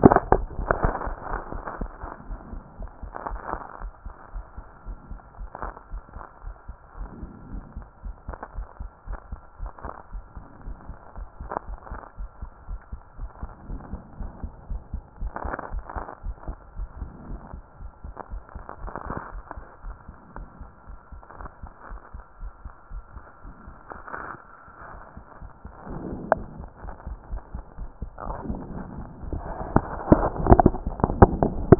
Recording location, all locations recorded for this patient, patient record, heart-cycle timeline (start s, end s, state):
pulmonary valve (PV)
pulmonary valve (PV)+tricuspid valve (TV)
#Age: Child
#Sex: Female
#Height: 151.0 cm
#Weight: 42.2 kg
#Pregnancy status: False
#Murmur: Absent
#Murmur locations: nan
#Most audible location: nan
#Systolic murmur timing: nan
#Systolic murmur shape: nan
#Systolic murmur grading: nan
#Systolic murmur pitch: nan
#Systolic murmur quality: nan
#Diastolic murmur timing: nan
#Diastolic murmur shape: nan
#Diastolic murmur grading: nan
#Diastolic murmur pitch: nan
#Diastolic murmur quality: nan
#Outcome: Normal
#Campaign: 2014 screening campaign
0.00	1.70	unannotated
1.70	1.80	diastole
1.80	1.90	S1
1.90	2.02	systole
2.02	2.10	S2
2.10	2.28	diastole
2.28	2.40	S1
2.40	2.52	systole
2.52	2.62	S2
2.62	2.78	diastole
2.78	2.90	S1
2.90	3.02	systole
3.02	3.12	S2
3.12	3.30	diastole
3.30	3.40	S1
3.40	3.52	systole
3.52	3.62	S2
3.62	3.82	diastole
3.82	3.92	S1
3.92	4.04	systole
4.04	4.14	S2
4.14	4.34	diastole
4.34	4.44	S1
4.44	4.56	systole
4.56	4.66	S2
4.66	4.86	diastole
4.86	4.98	S1
4.98	5.10	systole
5.10	5.20	S2
5.20	5.38	diastole
5.38	5.50	S1
5.50	5.64	systole
5.64	5.74	S2
5.74	5.92	diastole
5.92	6.02	S1
6.02	6.14	systole
6.14	6.24	S2
6.24	6.44	diastole
6.44	6.56	S1
6.56	6.68	systole
6.68	6.76	S2
6.76	6.98	diastole
6.98	7.10	S1
7.10	7.22	systole
7.22	7.30	S2
7.30	7.52	diastole
7.52	7.64	S1
7.64	7.76	systole
7.76	7.86	S2
7.86	8.04	diastole
8.04	8.16	S1
8.16	8.28	systole
8.28	8.36	S2
8.36	8.56	diastole
8.56	8.66	S1
8.66	8.80	systole
8.80	8.90	S2
8.90	9.08	diastole
9.08	9.20	S1
9.20	9.30	systole
9.30	9.40	S2
9.40	9.60	diastole
9.60	9.72	S1
9.72	9.84	systole
9.84	9.92	S2
9.92	10.12	diastole
10.12	10.24	S1
10.24	10.36	systole
10.36	10.44	S2
10.44	10.66	diastole
10.66	10.76	S1
10.76	10.88	systole
10.88	10.98	S2
10.98	11.16	diastole
11.16	11.28	S1
11.28	11.40	systole
11.40	11.50	S2
11.50	11.68	diastole
11.68	11.78	S1
11.78	11.90	systole
11.90	12.00	S2
12.00	12.18	diastole
12.18	12.30	S1
12.30	12.42	systole
12.42	12.50	S2
12.50	12.68	diastole
12.68	12.80	S1
12.80	12.92	systole
12.92	13.00	S2
13.00	13.18	diastole
13.18	13.30	S1
13.30	13.42	systole
13.42	13.50	S2
13.50	13.68	diastole
13.68	13.80	S1
13.80	13.92	systole
13.92	14.00	S2
14.00	14.20	diastole
14.20	14.32	S1
14.32	14.42	systole
14.42	14.52	S2
14.52	14.70	diastole
14.70	14.82	S1
14.82	14.92	systole
14.92	15.02	S2
15.02	15.20	diastole
15.20	31.79	unannotated